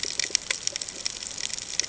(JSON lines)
{"label": "ambient", "recorder": "HydroMoth"}